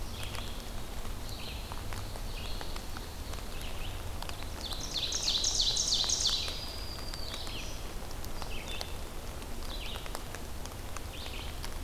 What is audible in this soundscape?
Red-eyed Vireo, Ovenbird, Black-throated Green Warbler